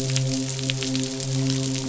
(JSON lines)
{"label": "biophony, midshipman", "recorder": "SoundTrap 500"}